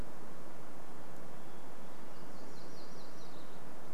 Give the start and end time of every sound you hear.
0s-2s: Hermit Thrush song
2s-4s: MacGillivray's Warbler song

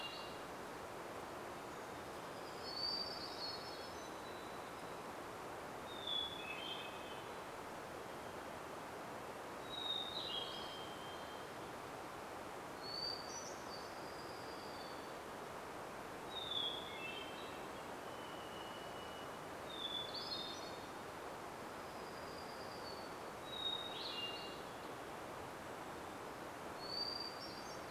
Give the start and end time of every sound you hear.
0s-28s: Hermit Thrush song
2s-4s: warbler song
2s-6s: Hermit Warbler song
4s-6s: Varied Thrush song
10s-12s: Golden-crowned Kinglet call
14s-16s: warbler song
16s-18s: Golden-crowned Kinglet call
18s-20s: Varied Thrush song
22s-24s: warbler song

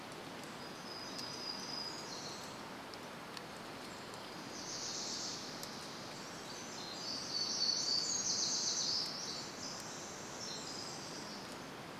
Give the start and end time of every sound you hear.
0s-4s: warbler song
4s-6s: Wilson's Warbler song
6s-10s: warbler song
6s-12s: Pacific Wren song

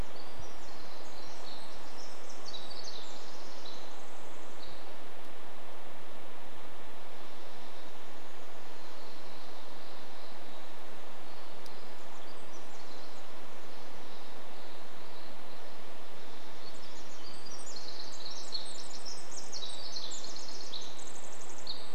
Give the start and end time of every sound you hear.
0s-22s: Pacific Wren song

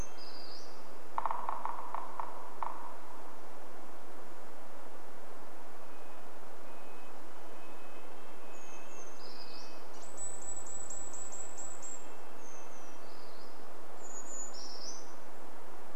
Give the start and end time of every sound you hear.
0s-2s: Brown Creeper song
0s-2s: Red-breasted Nuthatch song
0s-4s: woodpecker drumming
4s-14s: Red-breasted Nuthatch song
8s-10s: Brown Creeper song
10s-12s: Brown Creeper call
12s-16s: Brown Creeper song

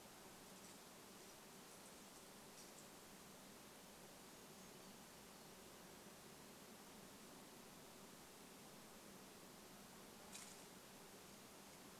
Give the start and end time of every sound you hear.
4s-6s: Brown Creeper call

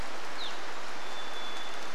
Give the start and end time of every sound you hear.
0s-2s: Evening Grosbeak call
0s-2s: Varied Thrush song
0s-2s: rain

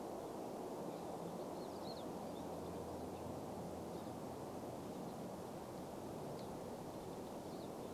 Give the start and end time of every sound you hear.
0s-8s: Pine Siskin song

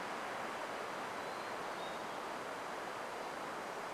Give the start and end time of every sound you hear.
0s-2s: Hermit Thrush song
0s-4s: insect buzz

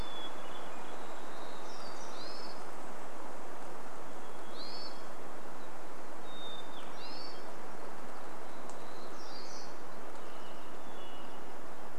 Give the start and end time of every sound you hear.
0s-2s: Hermit Thrush song
0s-2s: warbler song
2s-10s: Hermit Thrush call
4s-6s: Varied Thrush song
6s-8s: Hermit Thrush song
8s-10s: warbler song
10s-12s: Hermit Thrush song

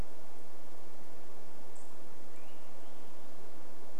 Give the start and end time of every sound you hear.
0s-2s: unidentified bird chip note
2s-4s: Swainson's Thrush song

